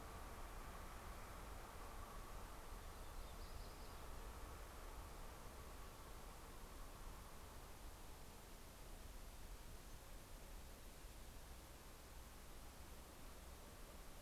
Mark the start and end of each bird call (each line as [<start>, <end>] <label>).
[2.01, 4.81] Yellow-rumped Warbler (Setophaga coronata)